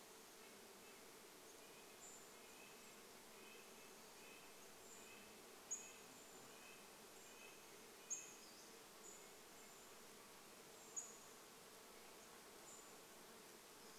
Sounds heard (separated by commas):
Pacific-slope Flycatcher call, Red-breasted Nuthatch song, Brown Creeper call, insect buzz